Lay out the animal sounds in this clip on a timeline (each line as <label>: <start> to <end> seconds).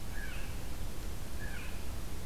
Blue Jay (Cyanocitta cristata): 0.1 to 0.6 seconds
Blue Jay (Cyanocitta cristata): 1.3 to 2.3 seconds